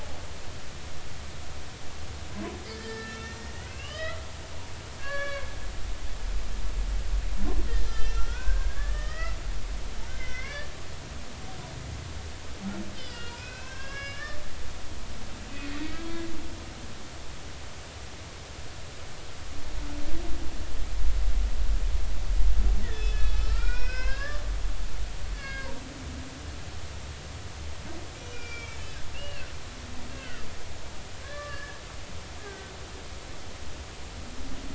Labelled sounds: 2.7	4.2	humpback whale, 1.1 to 5.0 kHz
5.0	5.5	humpback whale, 0.99 to 3.4 kHz
7.9	9.4	humpback whale, 1.2 to 6.1 kHz
10.1	10.7	humpback whale, 1.0 to 2.4 kHz
13.0	14.4	humpback whale, 1.1 to 5.7 kHz
15.7	16.2	humpback whale, 1.2 to 2.0 kHz
22.8	24.4	humpback whale, 1.1 to 5.8 kHz
25.3	25.7	humpback whale, 1.5 to 5.1 kHz
28.2	29.5	humpback whale, 2.2 to 5.9 kHz
30.1	31.8	humpback whale, 1.1 to 2.2 kHz
32.4	32.7	humpback whale, 1.5 to 1.8 kHz

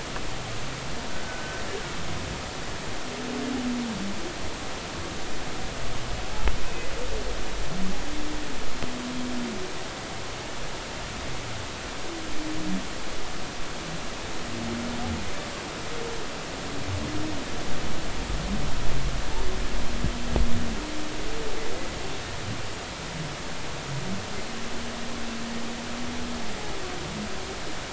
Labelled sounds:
1.1	1.6	humpback whale, 1.4 to 1.6 kHz

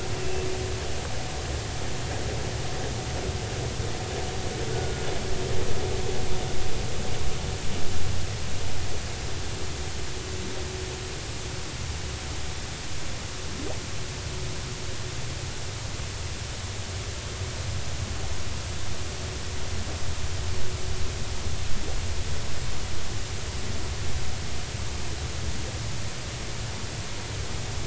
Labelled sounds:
4.7	5.0	humpback whale, 1.4 to 1.5 kHz

